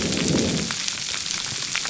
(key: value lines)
label: biophony
recorder: SoundTrap 300